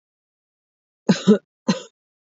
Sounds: Cough